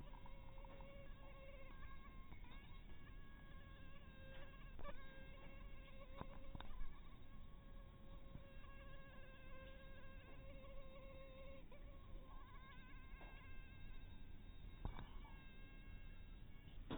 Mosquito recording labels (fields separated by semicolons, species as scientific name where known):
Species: mosquito; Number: one; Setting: cup